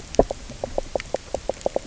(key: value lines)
label: biophony, knock croak
recorder: SoundTrap 300